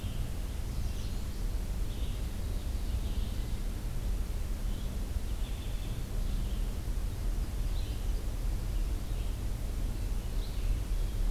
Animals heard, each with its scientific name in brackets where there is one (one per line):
Red-eyed Vireo (Vireo olivaceus)
American Goldfinch (Spinus tristis)
American Redstart (Setophaga ruticilla)